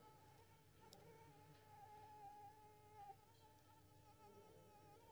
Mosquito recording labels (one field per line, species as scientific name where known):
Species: Anopheles squamosus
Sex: female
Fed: unfed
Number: one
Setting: cup